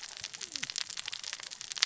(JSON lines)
{"label": "biophony, cascading saw", "recorder": "SoundTrap 600 or HydroMoth"}